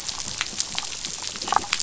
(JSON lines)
{"label": "biophony, damselfish", "recorder": "SoundTrap 500"}